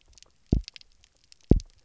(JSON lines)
{"label": "biophony, double pulse", "recorder": "SoundTrap 300"}